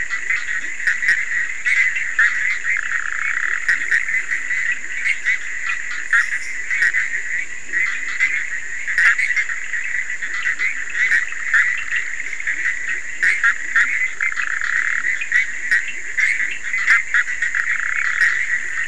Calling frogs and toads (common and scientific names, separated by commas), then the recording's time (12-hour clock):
Bischoff's tree frog (Boana bischoffi), Leptodactylus latrans, Cochran's lime tree frog (Sphaenorhynchus surdus)
1:30am